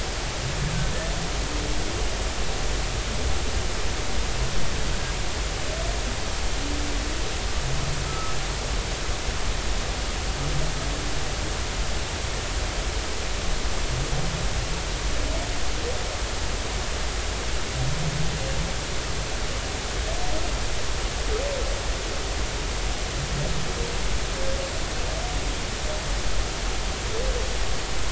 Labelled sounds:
8.1	8.4	humpback whale, 1.2 to 1.4 kHz

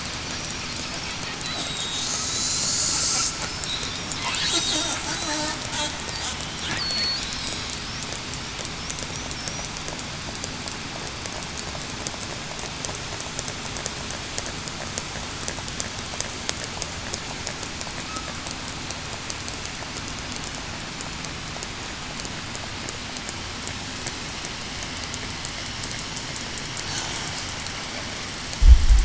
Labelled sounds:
1.4	2.7	killer whale, southern resident, 3.7 to 7.9 kHz
4.5	4.9	killer whale, southern resident, 3.6 to 3.9 kHz
6.7	7.2	killer whale, southern resident, 4.3 to 4.9 kHz

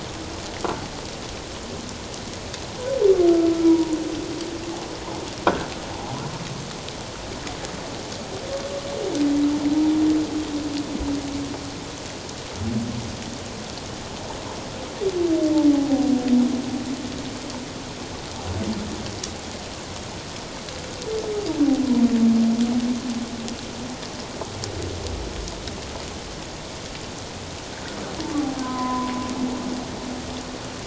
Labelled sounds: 3.6	4.0	humpback whale, 0.88 to 1.0 kHz
15.7	16.1	humpback whale, 0.78 to 0.88 kHz
28.6	29.1	humpback whale, 0.94 to 1.2 kHz

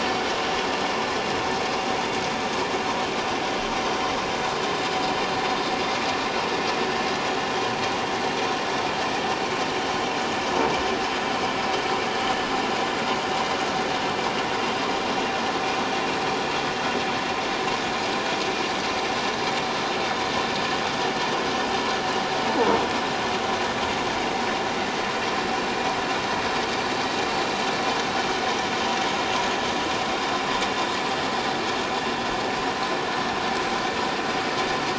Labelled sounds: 1.0	1.4	vessel noise, 6.2 to 6.3 kHz

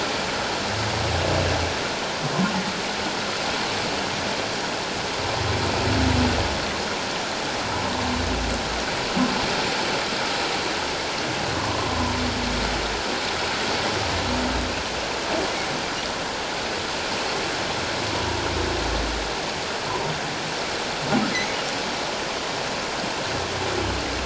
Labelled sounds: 11.5	11.9	humpback whale, 0.97 to 1.2 kHz
21.3	21.6	humpback whale, 1.9 to 2.3 kHz

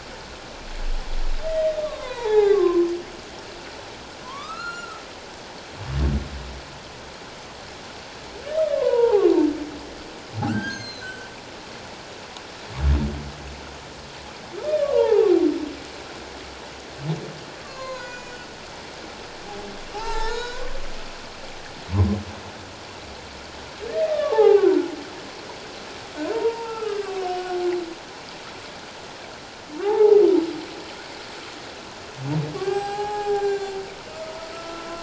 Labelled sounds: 1.5	2.9	humpback whale, 0.78 to 4.0 kHz
4.2	5.0	humpback whale, 0.91 to 7.1 kHz
8.6	9.3	humpback whale, 0.78 to 1.5 kHz
10.4	11.3	humpback whale, 1.2 to 6.5 kHz
14.9	15.3	humpback whale, 0.78 to 1.0 kHz
17.6	18.4	humpback whale, 0.91 to 7.9 kHz
19.9	20.6	humpback whale, 0.78 to 6.8 kHz
23.9	24.9	humpback whale, 0.78 to 2.2 kHz
26.3	27.5	humpback whale, 0.84 to 5.6 kHz
29.8	30.2	humpback whale, 0.78 to 0.97 kHz
32.5	33.7	humpback whale, 0.78 to 7.9 kHz
34.5	35.0	humpback whale, 1.3 to 1.4 kHz

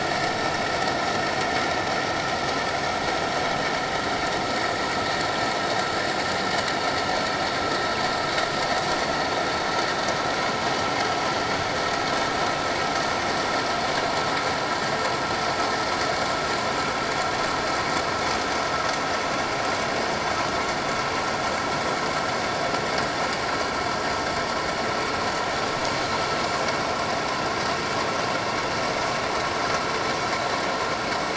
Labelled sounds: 25.9	26.1	Pacific white-sided dolphin, 6.3 to 6.6 kHz

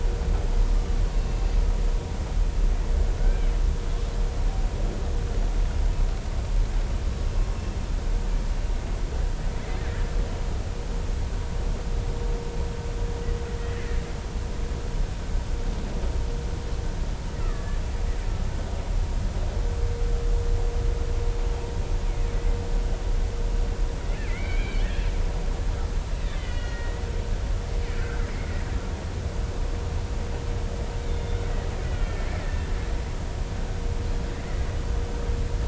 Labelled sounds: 1.0	1.4	killer whale, Bigg's (transient), 2.6 to 4.4 kHz
3.2	3.5	killer whale, Bigg's (transient), 1.4 to 1.6 kHz
17.4	17.8	killer whale, Bigg's (transient), 1.1 to 2.1 kHz
24.1	25.1	killer whale, Bigg's (transient), 1.6 to 2.8 kHz
26.3	27.0	killer whale, Bigg's (transient), 1.8 to 4.4 kHz
28.0	28.3	killer whale, Bigg's (transient), 1.3 to 1.8 kHz
31.1	32.7	killer whale, Bigg's (transient), 1.7 to 3.6 kHz

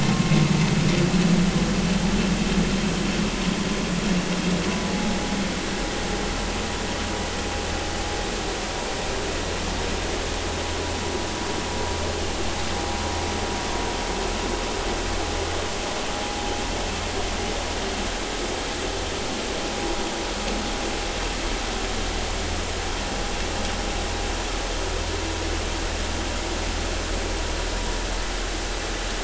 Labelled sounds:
4.9	5.2	vessel noise, 0.80 to 0.86 kHz

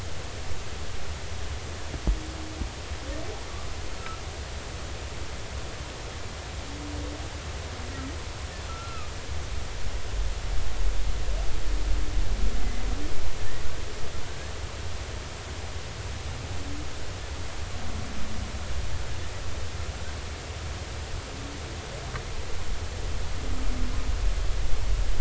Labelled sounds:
3.9	4.2	humpback whale, 1.2 to 1.4 kHz
8.7	9.1	humpback whale, 1.2 to 1.4 kHz
13.4	13.7	humpback whale, 1.7 to 2.0 kHz

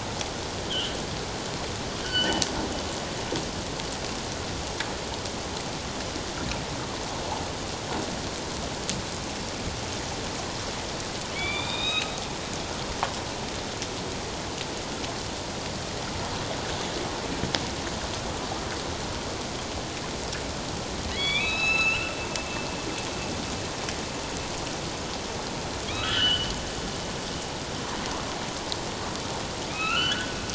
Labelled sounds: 0.7	0.9	humpback whale, 2.7 to 3.4 kHz
2.0	2.4	humpback whale, 1.4 to 3.1 kHz
11.3	12.1	humpback whale, 2.2 to 5.1 kHz
21.1	22.1	humpback whale, 1.2 to 6.7 kHz
25.9	26.5	humpback whale, 1.2 to 3.3 kHz
29.7	30.3	humpback whale, 1.2 to 3.1 kHz

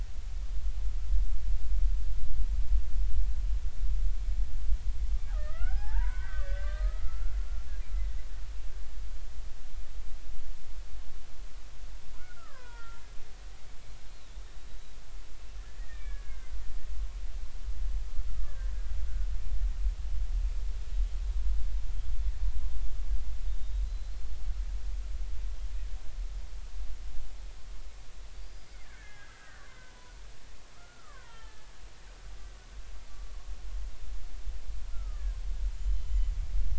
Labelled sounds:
5.3	7.4	killer whale, Bigg's (transient), 0.80 to 5.3 kHz
12.2	13.0	killer whale, Bigg's (transient), 0.90 to 3.5 kHz
14.4	14.7	killer whale, Bigg's (transient), 3.6 to 3.8 kHz
15.8	16.5	killer whale, Bigg's (transient), 1.5 to 2.5 kHz
18.4	18.7	killer whale, Bigg's (transient), 1.1 to 1.8 kHz
23.5	24.4	killer whale, Bigg's (transient), 3.6 to 4.4 kHz
28.4	30.1	killer whale, Bigg's (transient), 0.93 to 5.0 kHz
30.7	31.7	killer whale, Bigg's (transient), 0.86 to 3.3 kHz
34.9	35.3	killer whale, Bigg's (transient), 1.1 to 1.4 kHz
35.8	36.3	killer whale, Bigg's (transient), 2.0 to 3.1 kHz

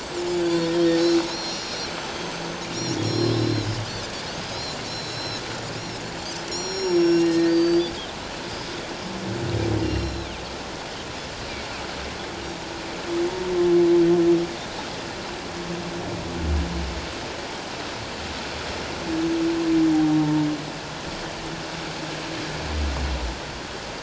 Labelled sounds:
0.4	2.6	Pacific white-sided dolphin, 3.8 to 7.7 kHz
3.0	3.7	Pacific white-sided dolphin, 3.8 to 5.6 kHz
4.4	5.4	Pacific white-sided dolphin, 3.8 to 5.6 kHz
5.8	6.0	Pacific white-sided dolphin, 5.0 to 5.7 kHz
6.5	7.9	Pacific white-sided dolphin, 2.7 to 7.2 kHz
7.2	7.6	humpback whale, 1.8 to 1.9 kHz
8.4	8.7	Pacific white-sided dolphin, 4.8 to 5.3 kHz
9.8	10.3	Pacific white-sided dolphin, 2.7 to 5.6 kHz
19.9	20.4	humpback whale, 0.78 to 0.94 kHz

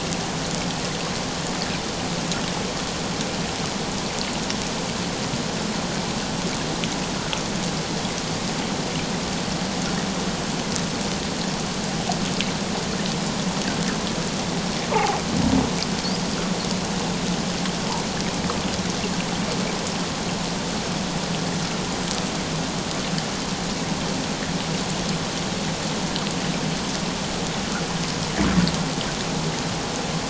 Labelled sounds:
14.9	15.2	humpback whale, 0.78 to 1.3 kHz

